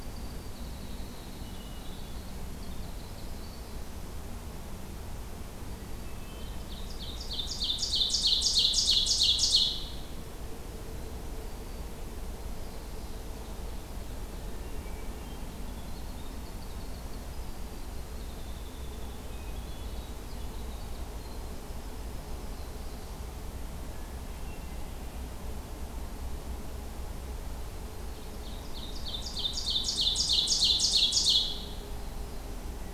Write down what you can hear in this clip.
Winter Wren, Hermit Thrush, Ovenbird, Black-throated Green Warbler, Black-throated Blue Warbler